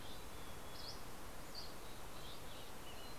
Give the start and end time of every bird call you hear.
[0.00, 1.33] Mountain Chickadee (Poecile gambeli)
[0.00, 2.33] Dusky Flycatcher (Empidonax oberholseri)
[1.13, 3.19] Western Tanager (Piranga ludoviciana)

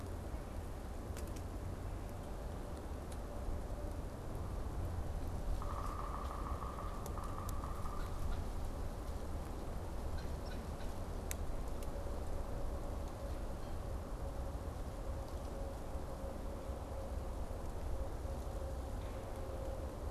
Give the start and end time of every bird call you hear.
[5.31, 8.51] Yellow-bellied Sapsucker (Sphyrapicus varius)
[7.81, 8.81] Red-bellied Woodpecker (Melanerpes carolinus)
[9.91, 10.91] Red-bellied Woodpecker (Melanerpes carolinus)

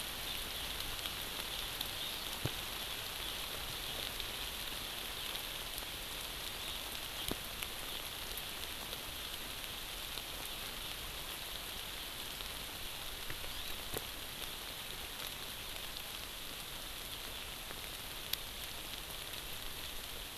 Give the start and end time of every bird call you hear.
[13.29, 13.79] Hawaii Amakihi (Chlorodrepanis virens)

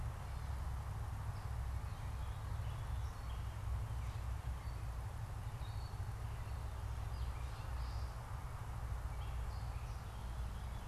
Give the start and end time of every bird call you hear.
[1.50, 9.80] Gray Catbird (Dumetella carolinensis)

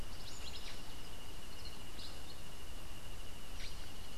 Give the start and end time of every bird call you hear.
[0.00, 3.92] Cabanis's Wren (Cantorchilus modestus)

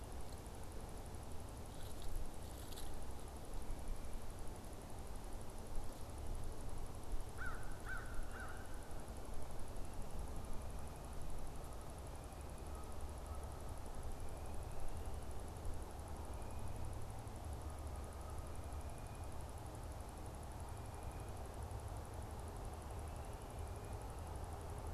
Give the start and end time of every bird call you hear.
[7.18, 8.98] American Crow (Corvus brachyrhynchos)

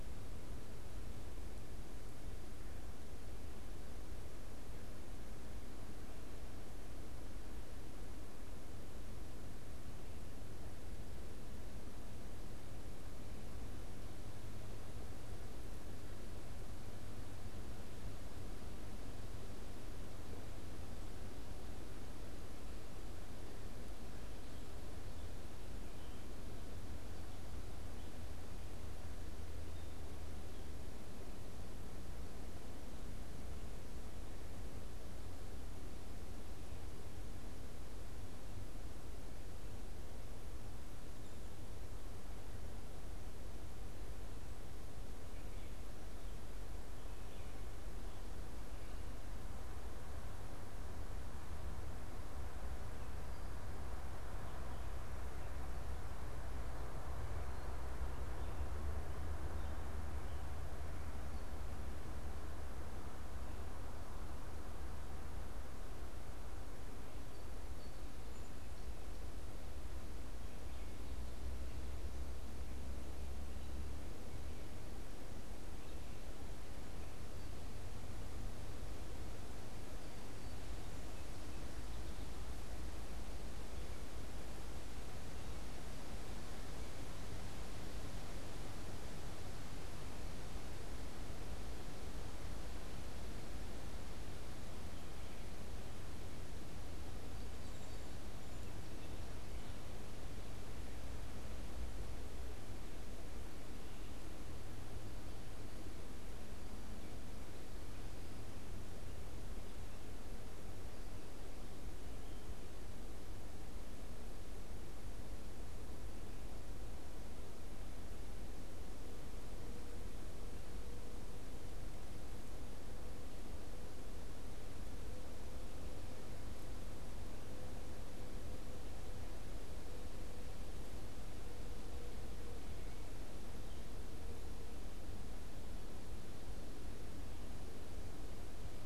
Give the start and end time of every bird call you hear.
[66.60, 69.30] Song Sparrow (Melospiza melodia)
[79.80, 82.50] Song Sparrow (Melospiza melodia)
[97.00, 99.40] Song Sparrow (Melospiza melodia)

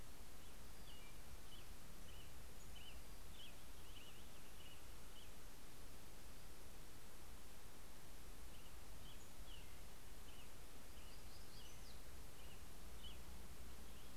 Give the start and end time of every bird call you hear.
[0.00, 5.90] American Robin (Turdus migratorius)
[8.70, 14.10] American Robin (Turdus migratorius)
[10.10, 12.50] Black-throated Gray Warbler (Setophaga nigrescens)

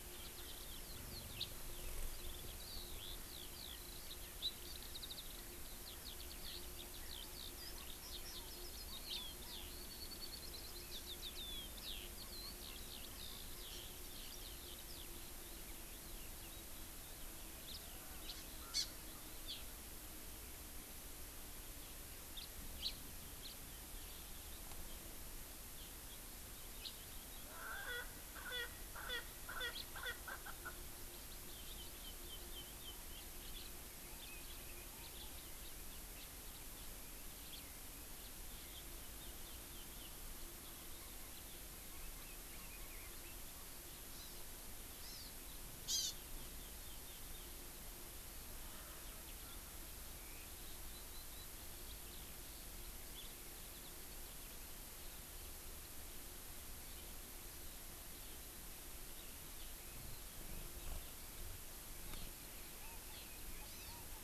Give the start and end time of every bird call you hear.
[0.00, 17.99] Eurasian Skylark (Alauda arvensis)
[1.39, 1.49] House Finch (Haemorhous mexicanus)
[18.19, 18.39] House Finch (Haemorhous mexicanus)
[18.69, 18.89] Hawaii Amakihi (Chlorodrepanis virens)
[22.29, 22.49] House Finch (Haemorhous mexicanus)
[22.79, 22.89] House Finch (Haemorhous mexicanus)
[23.39, 23.59] House Finch (Haemorhous mexicanus)
[26.79, 26.89] House Finch (Haemorhous mexicanus)
[27.39, 30.79] Erckel's Francolin (Pternistis erckelii)
[29.69, 29.89] House Finch (Haemorhous mexicanus)
[31.49, 32.99] Chinese Hwamei (Garrulax canorus)
[33.09, 33.69] House Finch (Haemorhous mexicanus)
[34.19, 34.29] House Finch (Haemorhous mexicanus)
[34.99, 35.09] House Finch (Haemorhous mexicanus)
[35.59, 35.69] House Finch (Haemorhous mexicanus)
[36.09, 36.29] House Finch (Haemorhous mexicanus)
[37.49, 37.59] House Finch (Haemorhous mexicanus)
[39.19, 40.19] Chinese Hwamei (Garrulax canorus)
[44.09, 44.39] Hawaii Amakihi (Chlorodrepanis virens)
[44.99, 45.29] Hawaii Amakihi (Chlorodrepanis virens)
[45.89, 46.09] Hawaii Amakihi (Chlorodrepanis virens)
[46.39, 47.49] Chinese Hwamei (Garrulax canorus)
[50.09, 54.49] Eurasian Skylark (Alauda arvensis)
[62.09, 62.29] Hawaii Amakihi (Chlorodrepanis virens)
[63.09, 63.29] Hawaii Amakihi (Chlorodrepanis virens)
[63.69, 63.89] Hawaii Amakihi (Chlorodrepanis virens)

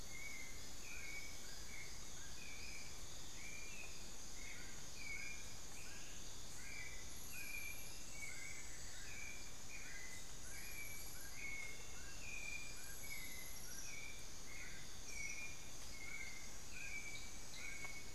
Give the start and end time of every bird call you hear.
[0.00, 18.15] Dull-capped Attila (Attila bolivianus)
[0.00, 18.15] White-necked Thrush (Turdus albicollis)
[8.24, 9.34] Amazonian Barred-Woodcreeper (Dendrocolaptes certhia)
[11.54, 12.04] Amazonian Motmot (Momotus momota)

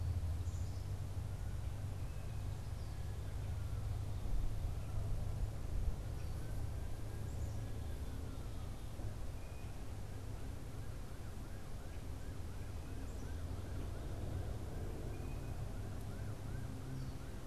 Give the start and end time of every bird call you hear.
[0.00, 1.20] Black-capped Chickadee (Poecile atricapillus)
[9.20, 9.90] unidentified bird

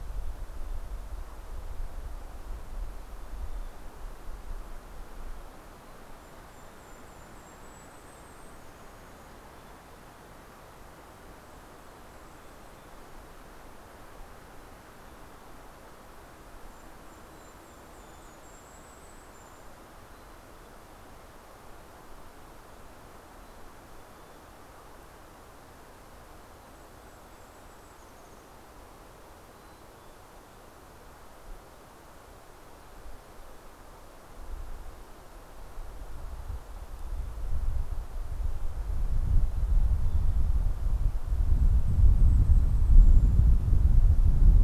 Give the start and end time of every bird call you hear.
[2.57, 4.07] Mountain Chickadee (Poecile gambeli)
[5.87, 9.17] Golden-crowned Kinglet (Regulus satrapa)
[8.17, 10.37] Mountain Chickadee (Poecile gambeli)
[10.97, 12.87] Golden-crowned Kinglet (Regulus satrapa)
[11.77, 13.17] Mountain Chickadee (Poecile gambeli)
[14.27, 15.97] Mountain Chickadee (Poecile gambeli)
[16.27, 20.17] Golden-crowned Kinglet (Regulus satrapa)
[17.17, 18.77] Mountain Chickadee (Poecile gambeli)
[19.87, 21.57] Mountain Chickadee (Poecile gambeli)
[23.17, 24.87] Mountain Chickadee (Poecile gambeli)
[26.17, 28.87] Golden-crowned Kinglet (Regulus satrapa)
[26.37, 27.77] Mountain Chickadee (Poecile gambeli)
[29.27, 31.07] Mountain Chickadee (Poecile gambeli)
[39.17, 40.47] Mountain Chickadee (Poecile gambeli)
[41.17, 44.17] Golden-crowned Kinglet (Regulus satrapa)
[41.97, 43.77] Mountain Chickadee (Poecile gambeli)

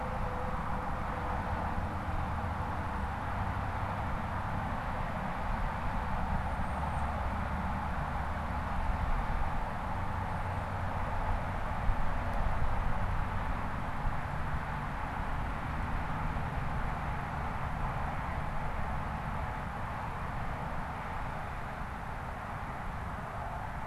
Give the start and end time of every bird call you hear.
[6.28, 7.18] Tufted Titmouse (Baeolophus bicolor)

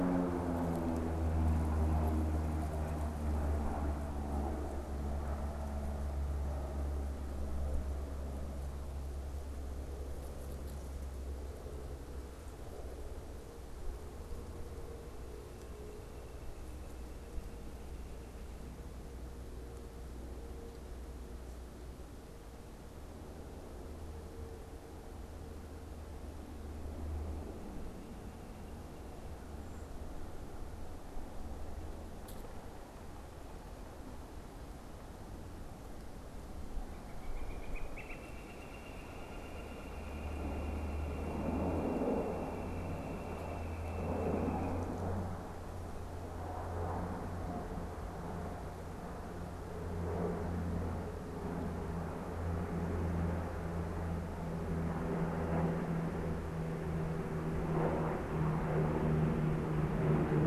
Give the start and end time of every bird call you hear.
[15.73, 18.83] Northern Flicker (Colaptes auratus)
[36.73, 45.03] Northern Flicker (Colaptes auratus)

